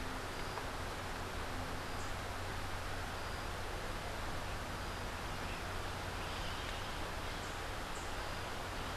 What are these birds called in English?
Rufous-capped Warbler